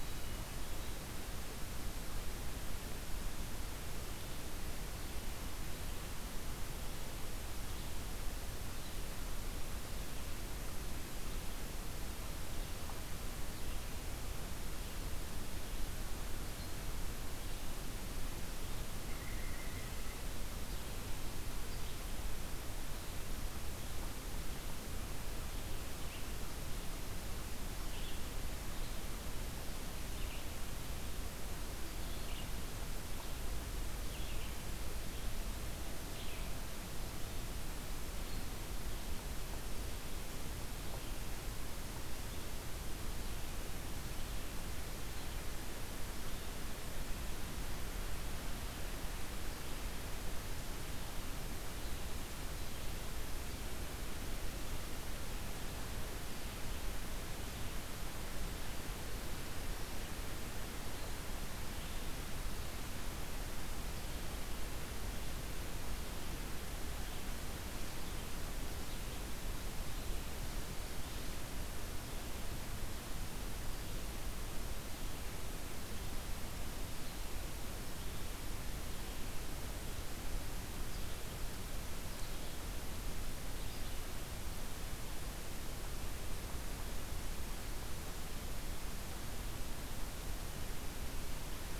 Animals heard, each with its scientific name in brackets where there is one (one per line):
Hermit Thrush (Catharus guttatus)
White-breasted Nuthatch (Sitta carolinensis)
Red-eyed Vireo (Vireo olivaceus)